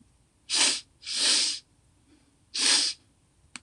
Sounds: Sniff